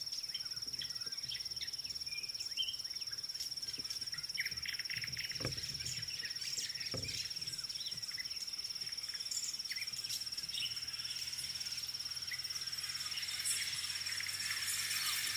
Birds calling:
White-browed Sparrow-Weaver (Plocepasser mahali)

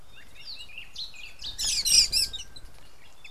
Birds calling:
Rufous Chatterer (Argya rubiginosa)

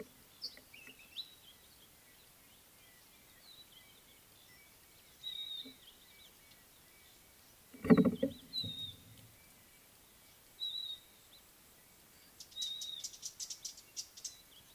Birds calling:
Red-backed Scrub-Robin (Cercotrichas leucophrys), Little Weaver (Ploceus luteolus)

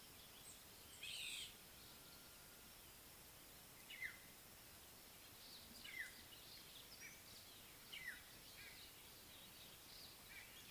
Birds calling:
African Black-headed Oriole (Oriolus larvatus)

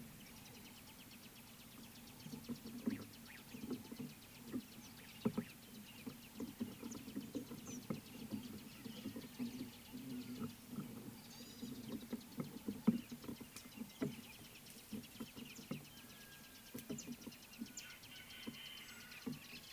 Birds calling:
Gray-backed Camaroptera (Camaroptera brevicaudata)

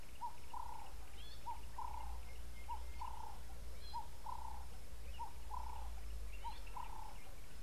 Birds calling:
Gray-backed Camaroptera (Camaroptera brevicaudata), Sulphur-breasted Bushshrike (Telophorus sulfureopectus)

